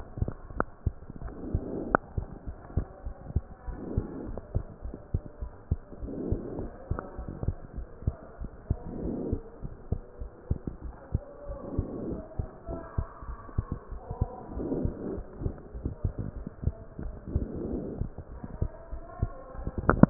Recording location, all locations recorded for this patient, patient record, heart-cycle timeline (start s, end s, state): pulmonary valve (PV)
aortic valve (AV)+pulmonary valve (PV)+tricuspid valve (TV)+mitral valve (MV)
#Age: Child
#Sex: Male
#Height: 113.0 cm
#Weight: 19.4 kg
#Pregnancy status: False
#Murmur: Absent
#Murmur locations: nan
#Most audible location: nan
#Systolic murmur timing: nan
#Systolic murmur shape: nan
#Systolic murmur grading: nan
#Systolic murmur pitch: nan
#Systolic murmur quality: nan
#Diastolic murmur timing: nan
#Diastolic murmur shape: nan
#Diastolic murmur grading: nan
#Diastolic murmur pitch: nan
#Diastolic murmur quality: nan
#Outcome: Normal
#Campaign: 2015 screening campaign
0.00	2.28	unannotated
2.28	2.46	diastole
2.46	2.56	S1
2.56	2.72	systole
2.72	2.86	S2
2.86	3.04	diastole
3.04	3.16	S1
3.16	3.32	systole
3.32	3.46	S2
3.46	3.66	diastole
3.66	3.78	S1
3.78	3.94	systole
3.94	4.08	S2
4.08	4.27	diastole
4.27	4.38	S1
4.38	4.52	systole
4.52	4.66	S2
4.66	4.84	diastole
4.84	4.94	S1
4.94	5.10	systole
5.10	5.22	S2
5.22	5.38	diastole
5.38	5.52	S1
5.52	5.67	systole
5.67	5.82	S2
5.82	6.00	diastole
6.00	6.10	S1
6.10	6.26	systole
6.26	6.40	S2
6.40	6.56	diastole
6.56	6.70	S1
6.70	6.86	systole
6.86	6.98	S2
6.98	7.18	diastole
7.18	7.28	S1
7.28	7.44	systole
7.44	7.56	S2
7.56	7.75	diastole
7.75	7.86	S1
7.86	8.03	systole
8.03	8.16	S2
8.16	8.40	diastole
8.40	8.50	S1
8.50	8.66	systole
8.66	8.82	S2
8.82	9.00	diastole
9.00	9.18	S1
9.18	9.30	systole
9.30	9.42	S2
9.42	9.60	diastole
9.60	9.72	S1
9.72	9.88	systole
9.88	10.02	S2
10.02	10.17	diastole
10.17	10.30	S1
10.30	10.46	systole
10.46	10.60	S2
10.60	10.80	diastole
10.80	10.94	S1
10.94	11.10	systole
11.10	11.24	S2
11.24	11.48	diastole
11.48	11.58	S1
11.58	11.72	systole
11.72	11.88	S2
11.88	12.04	diastole
12.04	12.20	S1
12.20	12.36	systole
12.36	12.48	S2
12.48	12.64	diastole
12.64	12.82	S1
12.82	12.94	systole
12.94	13.08	S2
13.08	13.25	diastole
13.25	13.38	S1
13.38	13.54	systole
13.54	13.68	S2
13.68	13.88	diastole
13.88	14.02	S1
14.02	14.18	systole
14.18	14.31	S2
14.31	14.44	diastole
14.44	20.10	unannotated